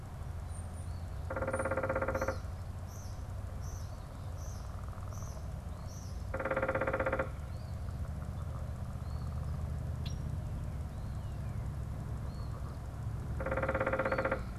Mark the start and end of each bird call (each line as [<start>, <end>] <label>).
[0.00, 6.56] European Starling (Sturnus vulgaris)
[1.16, 2.66] unidentified bird
[6.16, 7.36] unidentified bird
[7.46, 7.86] Eastern Phoebe (Sayornis phoebe)
[8.86, 9.56] Eastern Phoebe (Sayornis phoebe)
[9.96, 10.36] Red-winged Blackbird (Agelaius phoeniceus)
[12.06, 12.86] Eastern Phoebe (Sayornis phoebe)
[13.16, 14.56] unidentified bird
[13.96, 14.56] Eastern Phoebe (Sayornis phoebe)